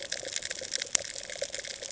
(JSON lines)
{"label": "ambient", "recorder": "HydroMoth"}